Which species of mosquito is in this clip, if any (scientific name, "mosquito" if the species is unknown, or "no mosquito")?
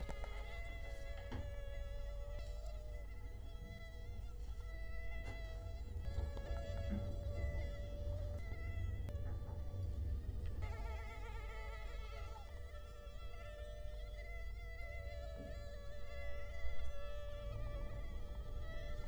Culex quinquefasciatus